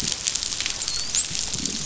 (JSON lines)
{"label": "biophony, dolphin", "recorder": "SoundTrap 500"}